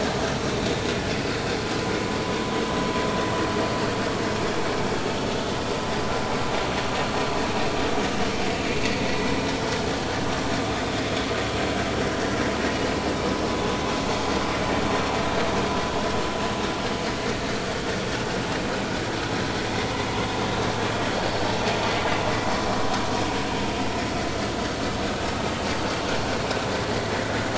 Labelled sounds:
14.9	15.1	vessel noise, 4.2 to 4.4 kHz

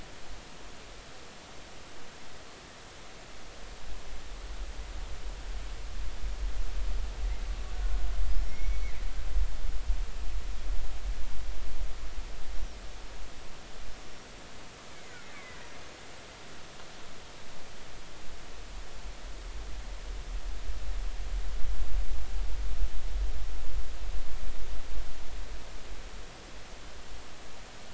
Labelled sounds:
7.7	8.0	killer whale, Bigg's (transient), 1.4 to 1.5 kHz
8.3	8.9	killer whale, Bigg's (transient), 2.1 to 5.9 kHz
14.0	14.3	killer whale, Bigg's (transient), 5.4 to 5.9 kHz
14.9	15.7	killer whale, Bigg's (transient), 1.8 to 2.4 kHz

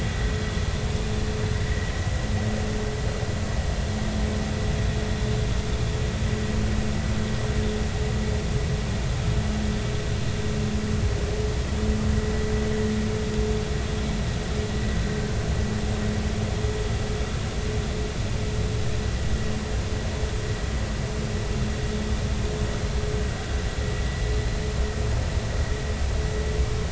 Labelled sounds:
1.7	1.9	vessel noise, 1.9 to 2.0 kHz

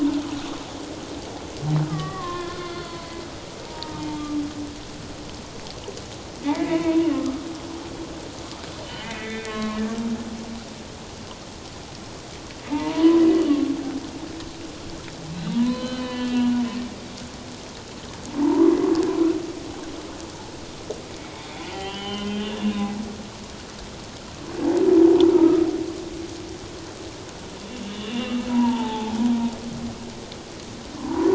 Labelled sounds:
1.9	3.2	humpback whale, 1.0 to 4.6 kHz
3.7	4.2	humpback whale, 0.84 to 1.3 kHz
6.4	7.0	humpback whale, 0.91 to 2.6 kHz
9.0	9.8	humpback whale, 0.94 to 2.6 kHz
12.7	13.2	humpback whale, 0.84 to 1.1 kHz
15.5	16.6	humpback whale, 0.91 to 4.5 kHz
18.4	18.7	humpback whale, 0.84 to 1.2 kHz
21.7	23.0	humpback whale, 1.0 to 3.2 kHz
25.3	25.7	humpback whale, 1.2 to 1.4 kHz
27.8	29.2	humpback whale, 0.78 to 3.1 kHz
30.9	31.3	humpback whale, 0.84 to 1.1 kHz

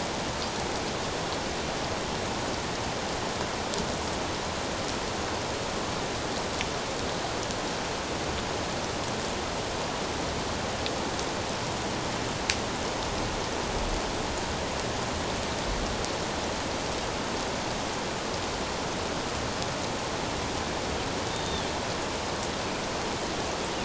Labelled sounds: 21.3	21.7	Pacific white-sided dolphin, 3.2 to 3.7 kHz

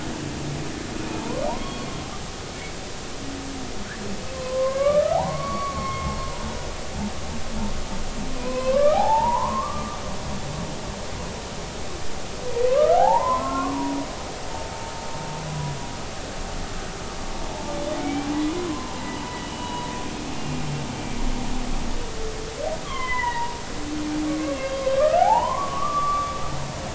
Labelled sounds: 1.2	1.9	humpback whale, 0.86 to 1.2 kHz
4.6	6.2	humpback whale, 0.80 to 4.5 kHz
8.4	10.0	humpback whale, 0.80 to 2.7 kHz
12.7	13.8	humpback whale, 0.80 to 1.5 kHz
15.5	15.7	humpback whale, 0.93 to 1.0 kHz
18.0	19.1	humpback whale, 0.83 to 2.4 kHz
19.4	19.9	humpback whale, 0.93 to 3.0 kHz
20.3	20.6	humpback whale, 2.7 to 2.8 kHz
22.8	23.6	humpback whale, 0.86 to 3.4 kHz
24.3	26.4	humpback whale, 0.80 to 4.9 kHz

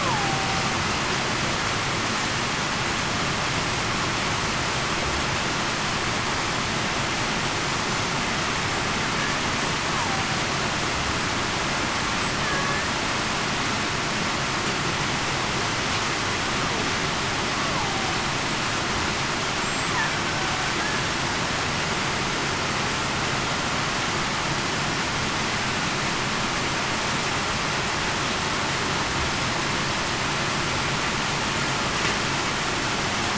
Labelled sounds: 0.0	0.5	killer whale, Bigg's (transient), 0.75 to 1.1 kHz
12.4	12.8	killer whale, Bigg's (transient), 1.6 to 1.8 kHz

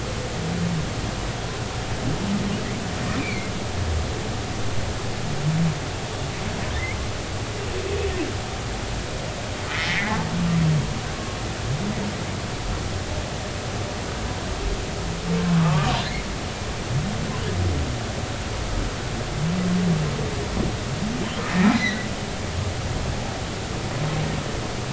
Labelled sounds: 3.2	3.5	humpback whale, 2.0 to 2.6 kHz
9.7	10.1	humpback whale, 1.7 to 2.4 kHz
15.6	15.9	humpback whale, 1.0 to 1.3 kHz
21.4	22.1	humpback whale, 1.8 to 4.2 kHz

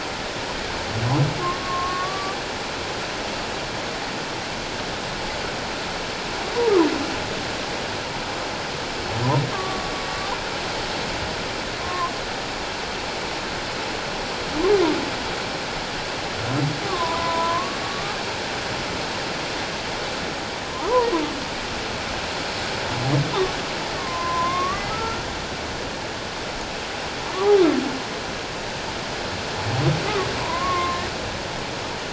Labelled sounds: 1.6	2.4	humpback whale, 0.97 to 1.2 kHz
9.5	9.9	humpback whale, 1.0 to 1.2 kHz
11.8	12.1	humpback whale, 0.97 to 1.1 kHz
16.9	18.2	humpback whale, 0.91 to 1.3 kHz
20.7	21.1	humpback whale, 0.78 to 1.4 kHz
24.0	25.3	humpback whale, 0.97 to 2.1 kHz
27.3	27.6	humpback whale, 0.97 to 1.3 kHz
30.4	31.0	humpback whale, 0.91 to 1.2 kHz

